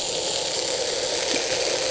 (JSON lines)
{"label": "anthrophony, boat engine", "recorder": "HydroMoth"}